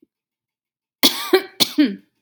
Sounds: Cough